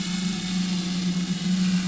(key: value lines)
label: anthrophony, boat engine
recorder: SoundTrap 500